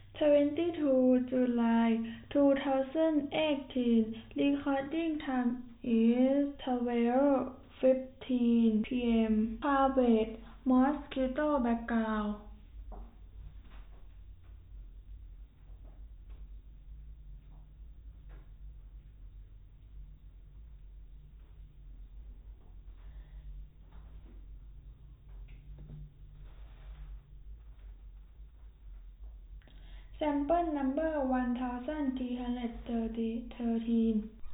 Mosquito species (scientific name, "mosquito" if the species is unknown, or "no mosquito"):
no mosquito